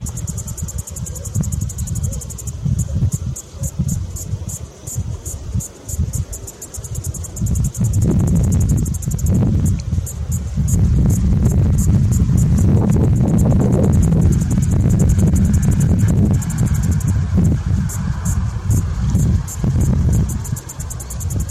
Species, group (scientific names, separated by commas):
Tettigettalna mariae, Cicadidae